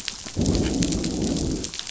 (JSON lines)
{"label": "biophony, growl", "recorder": "SoundTrap 500"}